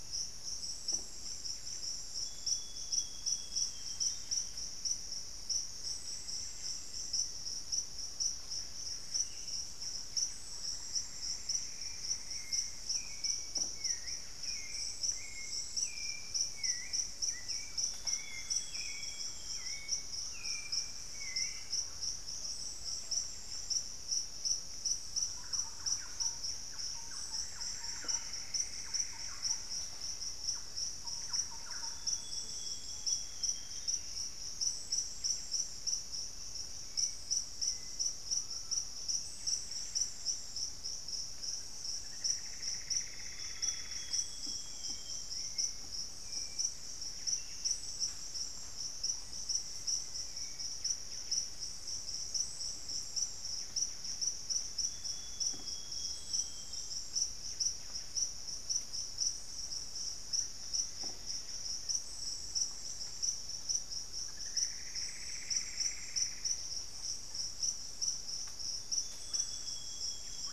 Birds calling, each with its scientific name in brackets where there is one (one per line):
unidentified bird
Buff-breasted Wren (Cantorchilus leucotis)
Russet-backed Oropendola (Psarocolius angustifrons)
Screaming Piha (Lipaugus vociferans)
Hauxwell's Thrush (Turdus hauxwelli)
Plumbeous Antbird (Myrmelastes hyperythrus)
Amazonian Grosbeak (Cyanoloxia rothschildii)
Cinereous Tinamou (Crypturellus cinereus)
Mealy Parrot (Amazona farinosa)
Thrush-like Wren (Campylorhynchus turdinus)
Black-faced Antthrush (Formicarius analis)